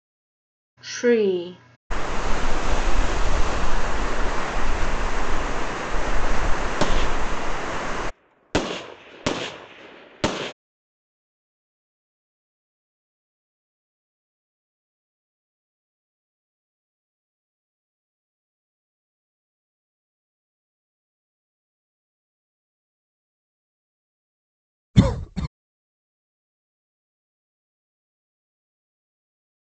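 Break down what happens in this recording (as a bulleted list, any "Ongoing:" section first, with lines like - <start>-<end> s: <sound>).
- 0.87-1.49 s: someone says "tree"
- 1.9-8.11 s: you can hear water
- 6.79-10.53 s: gunfire is heard
- 24.93-25.47 s: someone coughs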